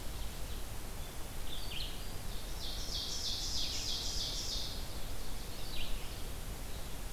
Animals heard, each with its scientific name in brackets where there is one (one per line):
Red-eyed Vireo (Vireo olivaceus)
Ovenbird (Seiurus aurocapilla)